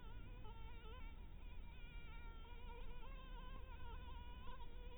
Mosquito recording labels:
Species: Anopheles dirus; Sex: female; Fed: blood-fed; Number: one; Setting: cup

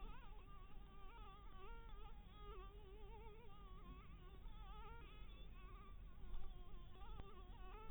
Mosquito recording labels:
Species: Anopheles dirus; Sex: female; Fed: blood-fed; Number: one; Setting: cup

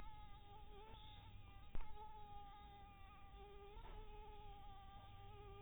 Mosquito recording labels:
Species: mosquito; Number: one; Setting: cup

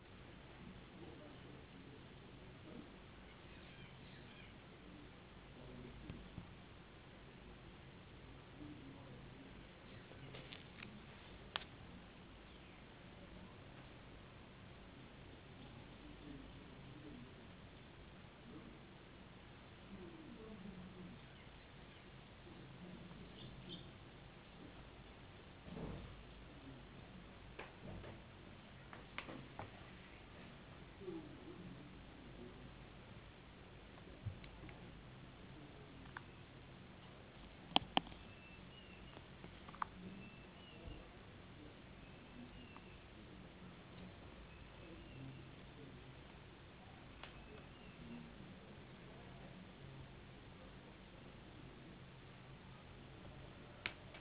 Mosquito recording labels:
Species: no mosquito; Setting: insect culture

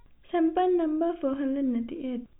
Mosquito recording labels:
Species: no mosquito; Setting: cup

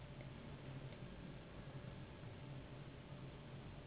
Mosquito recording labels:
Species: Anopheles gambiae s.s.; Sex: female; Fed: unfed; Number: one; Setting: insect culture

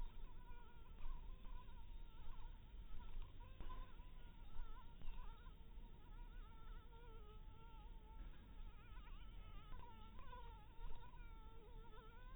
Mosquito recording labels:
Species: Anopheles dirus; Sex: female; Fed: blood-fed; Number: one; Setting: cup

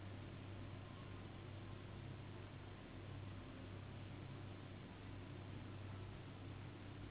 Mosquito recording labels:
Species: Anopheles gambiae s.s.; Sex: female; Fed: unfed; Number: one; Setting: insect culture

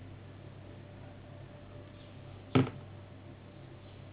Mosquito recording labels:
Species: Anopheles gambiae s.s.; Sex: female; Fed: unfed; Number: one; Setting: insect culture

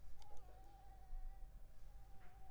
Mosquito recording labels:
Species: Anopheles arabiensis; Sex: female; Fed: unfed; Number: one; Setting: cup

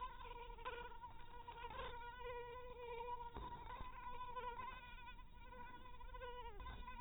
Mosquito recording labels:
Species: mosquito; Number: one; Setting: cup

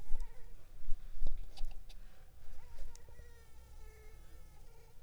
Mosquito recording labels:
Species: Culex pipiens complex; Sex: female; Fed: unfed; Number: one; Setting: cup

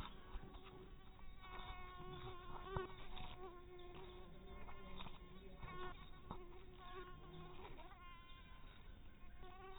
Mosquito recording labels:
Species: mosquito; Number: one; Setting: cup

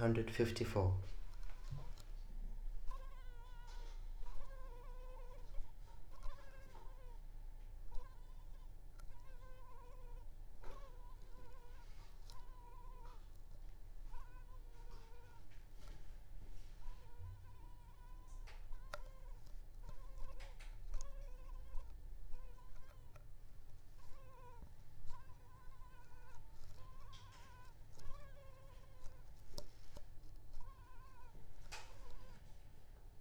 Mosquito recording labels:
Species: mosquito; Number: one; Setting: cup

